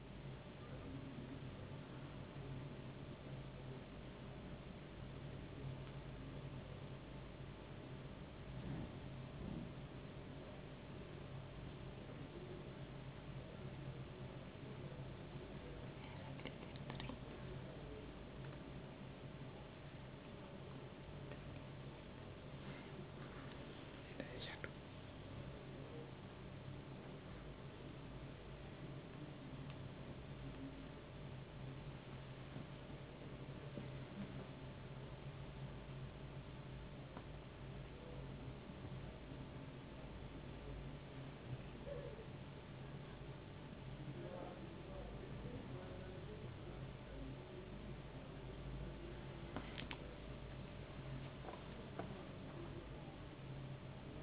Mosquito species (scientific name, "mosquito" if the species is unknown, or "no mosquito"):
no mosquito